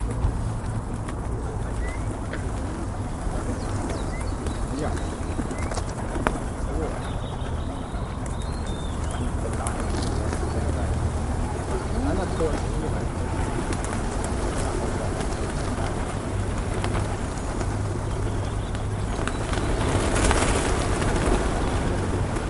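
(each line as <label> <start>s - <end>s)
A bird chirps brightly. 0.0s - 22.5s
A bird chirps steadily while a person speaks faintly in the distance. 7.4s - 11.9s
Rain falls heavily while birds chirp persistently in the background. 17.9s - 22.5s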